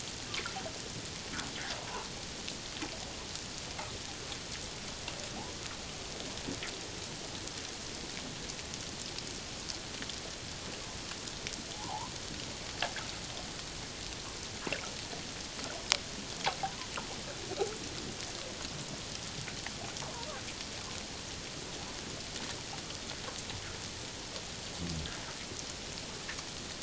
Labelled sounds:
1.8	2.1	fish, 0.84 to 1.2 kHz
11.7	12.1	fish, 0.78 to 1.1 kHz

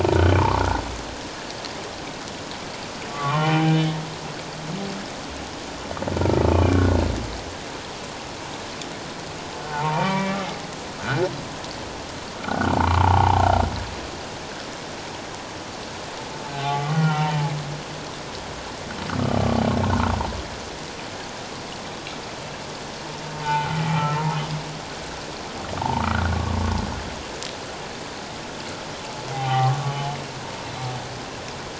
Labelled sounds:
0.4	0.6	humpback whale, 0.81 to 1.2 kHz
3.1	3.8	humpback whale, 0.78 to 3.1 kHz
6.5	7.0	humpback whale, 1.3 to 2.6 kHz
9.7	10.4	humpback whale, 0.78 to 2.5 kHz
11.0	11.3	humpback whale, 1.2 to 1.6 kHz
12.4	13.5	humpback whale, 0.78 to 1.6 kHz
16.5	17.5	humpback whale, 0.78 to 3.1 kHz
23.4	24.1	humpback whale, 0.78 to 3.1 kHz
25.8	26.1	humpback whale, 0.78 to 1.1 kHz
29.3	29.8	humpback whale, 0.78 to 1.2 kHz

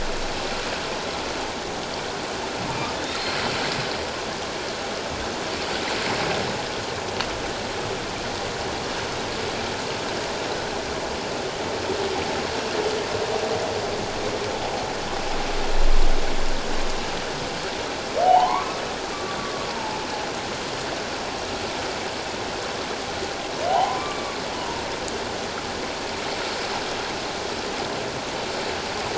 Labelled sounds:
18.2	19.4	humpback whale, 0.78 to 3.1 kHz
19.7	20.0	humpback whale, 0.81 to 0.97 kHz
23.7	24.8	humpback whale, 0.78 to 2.4 kHz

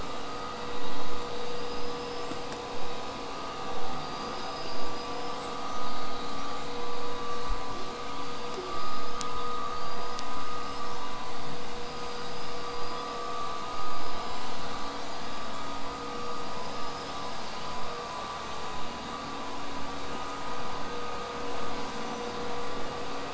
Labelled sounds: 1.3	2.3	killer whale, southern resident, whistle, 4.6 to 8.0 kHz
4.0	5.5	killer whale, southern resident, 4.5 to 8.0 kHz
8.1	9.3	killer whale, southern resident, 1.2 to 8.0 kHz
9.6	11.2	killer whale, southern resident, 4.4 to 8.0 kHz
11.8	15.6	killer whale, southern resident, 4.5 to 8.0 kHz
16.2	17.5	killer whale, southern resident, 4.5 to 8.0 kHz

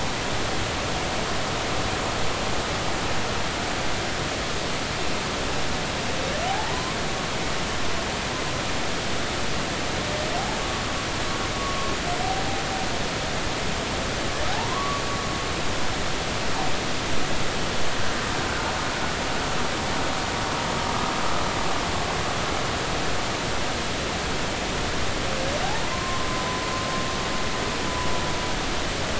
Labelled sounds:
6.5	7.0	humpback whale, 0.80 to 1.1 kHz
10.6	10.8	humpback whale, 1.1 to 1.2 kHz
14.5	15.0	humpback whale, 0.80 to 1.2 kHz
25.9	26.3	humpback whale, 0.99 to 1.1 kHz

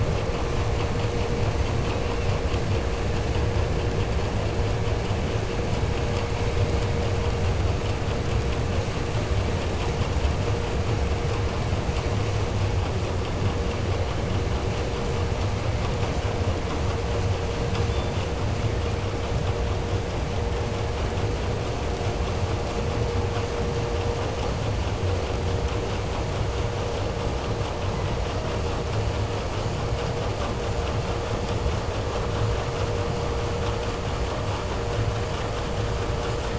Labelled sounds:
17.8	18.4	killer whale, 1.4 to 5.5 kHz

